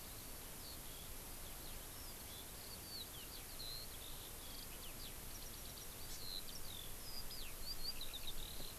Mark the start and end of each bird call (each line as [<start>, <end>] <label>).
[0.00, 8.79] Eurasian Skylark (Alauda arvensis)